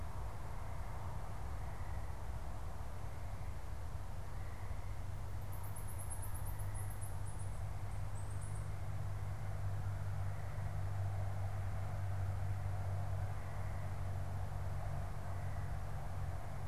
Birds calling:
Black-capped Chickadee (Poecile atricapillus)

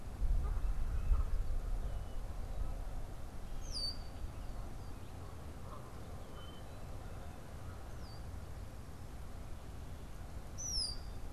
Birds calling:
Red-winged Blackbird (Agelaius phoeniceus), Canada Goose (Branta canadensis), unidentified bird

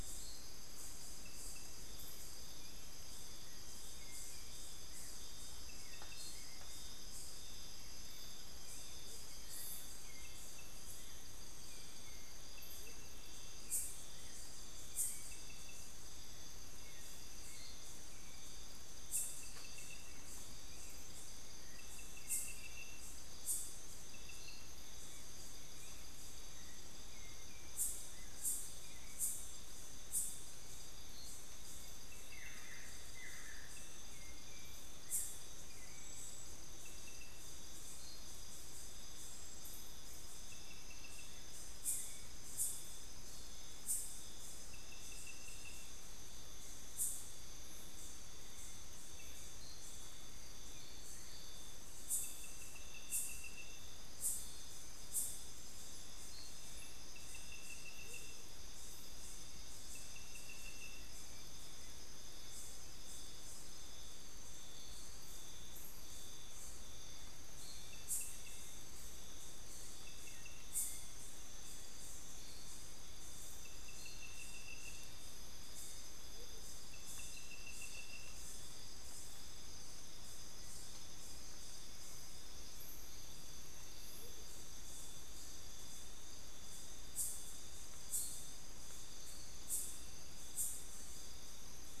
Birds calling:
Amazonian Motmot (Momotus momota), Buff-throated Woodcreeper (Xiphorhynchus guttatus), Hauxwell's Thrush (Turdus hauxwelli)

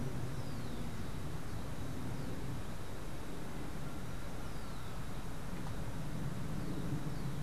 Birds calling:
Rufous-collared Sparrow (Zonotrichia capensis)

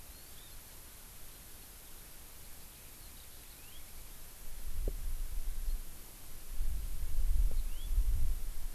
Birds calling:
Hawaii Amakihi (Chlorodrepanis virens), Eurasian Skylark (Alauda arvensis)

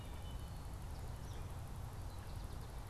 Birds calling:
American Goldfinch (Spinus tristis)

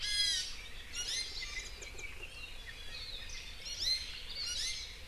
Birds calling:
Warbling White-eye (Zosterops japonicus), Iiwi (Drepanis coccinea)

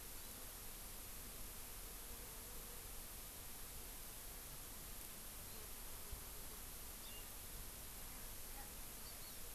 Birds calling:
House Finch (Haemorhous mexicanus), Hawaii Amakihi (Chlorodrepanis virens)

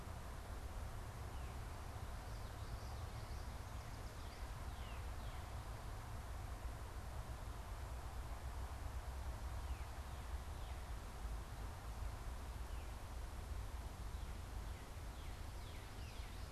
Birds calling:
Northern Cardinal (Cardinalis cardinalis), Yellow Warbler (Setophaga petechia)

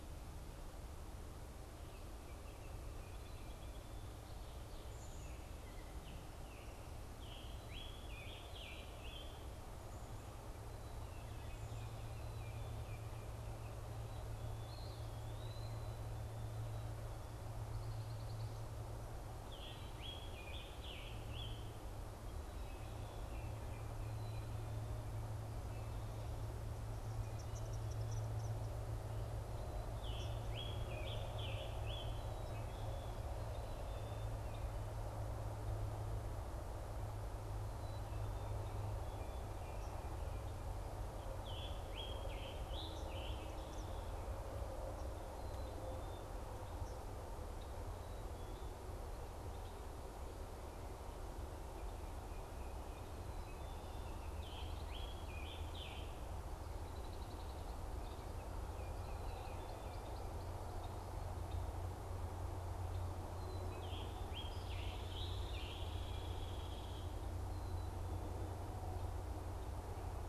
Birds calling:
Hairy Woodpecker (Dryobates villosus), Eastern Wood-Pewee (Contopus virens), Scarlet Tanager (Piranga olivacea), Eastern Kingbird (Tyrannus tyrannus), Red-winged Blackbird (Agelaius phoeniceus)

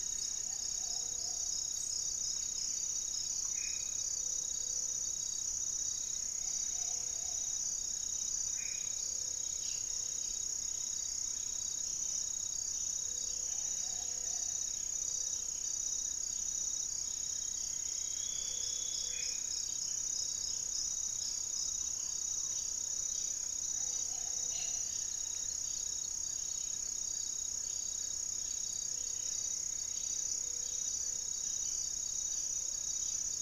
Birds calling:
unidentified bird, Hauxwell's Thrush (Turdus hauxwelli), Solitary Black Cacique (Cacicus solitarius), Plumbeous Antbird (Myrmelastes hyperythrus), Buff-breasted Wren (Cantorchilus leucotis), Black-faced Antthrush (Formicarius analis), Gray-fronted Dove (Leptotila rufaxilla), Amazonian Trogon (Trogon ramonianus)

